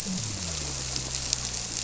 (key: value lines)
label: biophony
recorder: SoundTrap 300